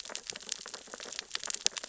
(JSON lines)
{"label": "biophony, sea urchins (Echinidae)", "recorder": "SoundTrap 600 or HydroMoth"}